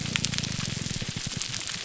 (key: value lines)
label: biophony, grouper groan
recorder: SoundTrap 300